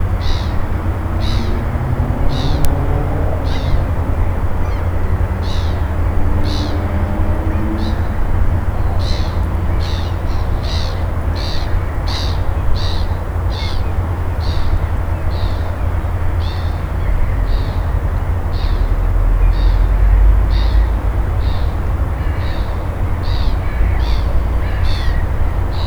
are the birds outside?
yes